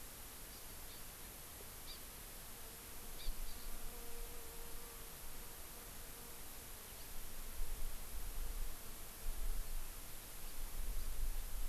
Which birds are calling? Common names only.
Hawaii Amakihi